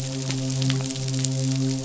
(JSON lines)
{"label": "biophony, midshipman", "recorder": "SoundTrap 500"}